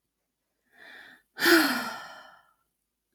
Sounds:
Sigh